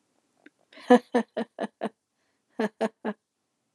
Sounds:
Laughter